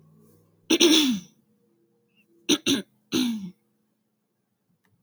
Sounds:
Throat clearing